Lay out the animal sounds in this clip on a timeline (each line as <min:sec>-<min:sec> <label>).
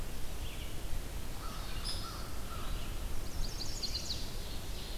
0:00.0-0:05.0 Red-eyed Vireo (Vireo olivaceus)
0:01.3-0:02.9 American Crow (Corvus brachyrhynchos)
0:01.8-0:01.9 Hairy Woodpecker (Dryobates villosus)
0:03.0-0:04.7 Chestnut-sided Warbler (Setophaga pensylvanica)
0:04.2-0:05.0 Ovenbird (Seiurus aurocapilla)